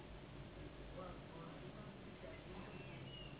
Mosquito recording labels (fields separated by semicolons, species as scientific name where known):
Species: Anopheles gambiae s.s.; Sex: female; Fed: unfed; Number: one; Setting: insect culture